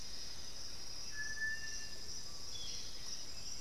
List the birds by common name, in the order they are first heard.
Dusky-headed Parakeet, Thrush-like Wren, Black-billed Thrush, Striped Cuckoo, Russet-backed Oropendola